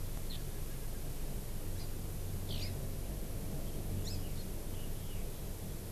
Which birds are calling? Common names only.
Hawaii Amakihi, Eurasian Skylark